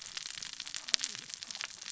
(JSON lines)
{"label": "biophony, cascading saw", "recorder": "SoundTrap 600 or HydroMoth"}